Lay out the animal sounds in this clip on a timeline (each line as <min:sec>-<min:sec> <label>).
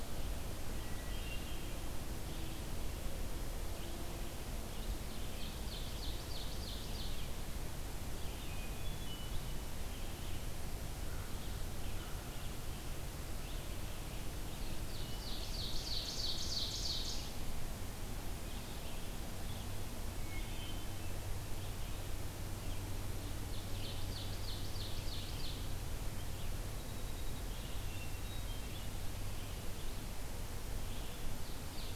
0:00.0-0:14.9 Red-eyed Vireo (Vireo olivaceus)
0:00.7-0:01.7 Wood Thrush (Hylocichla mustelina)
0:05.0-0:07.5 Ovenbird (Seiurus aurocapilla)
0:08.4-0:09.4 Wood Thrush (Hylocichla mustelina)
0:10.8-0:12.4 American Crow (Corvus brachyrhynchos)
0:14.7-0:17.6 Ovenbird (Seiurus aurocapilla)
0:14.9-0:15.4 Wood Thrush (Hylocichla mustelina)
0:18.5-0:31.9 Red-eyed Vireo (Vireo olivaceus)
0:20.1-0:20.9 Wood Thrush (Hylocichla mustelina)
0:22.5-0:25.6 Ovenbird (Seiurus aurocapilla)
0:26.6-0:27.5 Winter Wren (Troglodytes hiemalis)
0:27.8-0:28.8 Wood Thrush (Hylocichla mustelina)
0:31.2-0:31.9 Ovenbird (Seiurus aurocapilla)